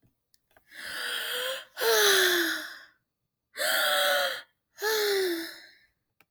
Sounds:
Sigh